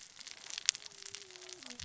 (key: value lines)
label: biophony, cascading saw
recorder: SoundTrap 600 or HydroMoth